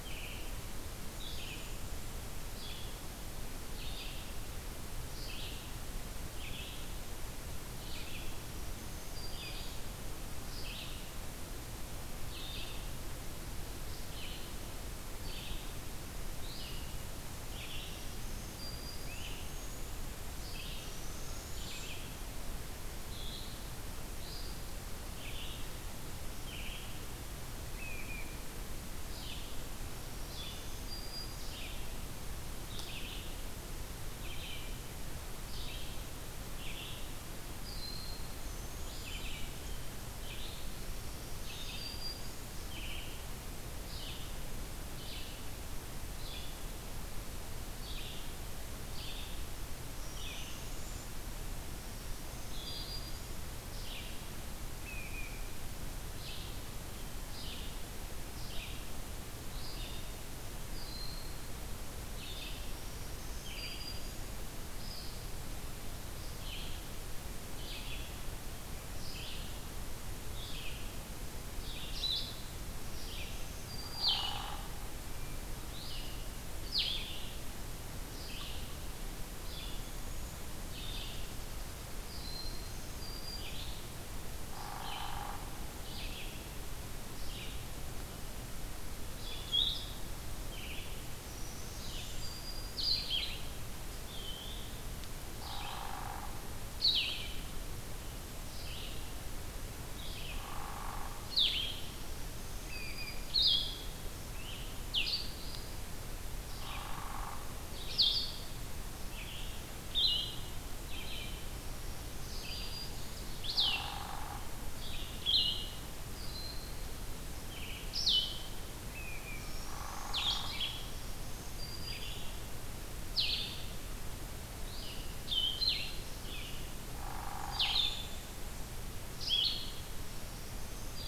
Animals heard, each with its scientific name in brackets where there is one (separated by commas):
Blue-headed Vireo (Vireo solitarius), unidentified call, Great Crested Flycatcher (Myiarchus crinitus), Red-eyed Vireo (Vireo olivaceus), Eastern Wood-Pewee (Contopus virens), Broad-winged Hawk (Buteo platypterus), Hairy Woodpecker (Dryobates villosus), Black-throated Green Warbler (Setophaga virens)